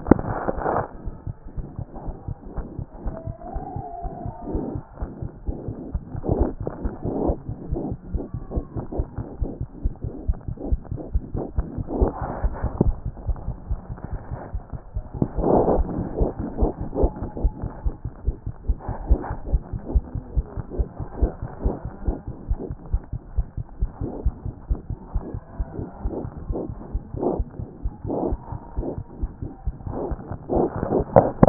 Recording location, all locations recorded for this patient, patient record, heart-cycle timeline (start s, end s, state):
aortic valve (AV)
aortic valve (AV)+mitral valve (MV)
#Age: Infant
#Sex: Male
#Height: 54.0 cm
#Weight: 7.7 kg
#Pregnancy status: False
#Murmur: Unknown
#Murmur locations: nan
#Most audible location: nan
#Systolic murmur timing: nan
#Systolic murmur shape: nan
#Systolic murmur grading: nan
#Systolic murmur pitch: nan
#Systolic murmur quality: nan
#Diastolic murmur timing: nan
#Diastolic murmur shape: nan
#Diastolic murmur grading: nan
#Diastolic murmur pitch: nan
#Diastolic murmur quality: nan
#Outcome: Abnormal
#Campaign: 2014 screening campaign
0.00	0.90	unannotated
0.90	1.05	diastole
1.05	1.14	S1
1.14	1.26	systole
1.26	1.34	S2
1.34	1.56	diastole
1.56	1.66	S1
1.66	1.78	systole
1.78	1.86	S2
1.86	2.04	diastole
2.04	2.14	S1
2.14	2.28	systole
2.28	2.36	S2
2.36	2.56	diastole
2.56	2.66	S1
2.66	2.78	systole
2.78	2.86	S2
2.86	3.04	diastole
3.04	3.14	S1
3.14	3.26	systole
3.26	3.36	S2
3.36	3.54	diastole
3.54	3.62	S1
3.62	3.76	systole
3.76	3.84	S2
3.84	4.04	diastole
4.04	4.12	S1
4.12	4.24	systole
4.24	4.32	S2
4.32	4.50	diastole
4.50	4.64	S1
4.64	4.74	systole
4.74	4.82	S2
4.82	5.02	diastole
5.02	5.10	S1
5.10	5.22	systole
5.22	5.30	S2
5.30	5.48	diastole
5.48	5.56	S1
5.56	5.68	systole
5.68	5.78	S2
5.78	5.91	diastole
5.91	31.49	unannotated